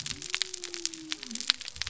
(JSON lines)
{"label": "biophony", "recorder": "SoundTrap 300"}